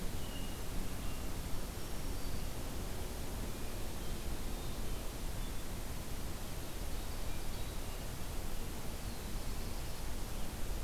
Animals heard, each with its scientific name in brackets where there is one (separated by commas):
Blue Jay (Cyanocitta cristata), Black-throated Blue Warbler (Setophaga caerulescens), Black-throated Green Warbler (Setophaga virens)